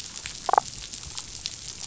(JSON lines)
{"label": "biophony, damselfish", "recorder": "SoundTrap 500"}